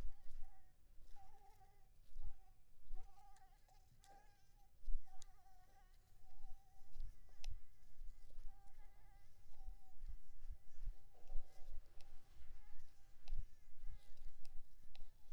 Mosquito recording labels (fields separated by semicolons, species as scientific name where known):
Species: Anopheles maculipalpis; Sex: female; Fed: unfed; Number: one; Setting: cup